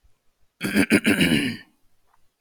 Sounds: Throat clearing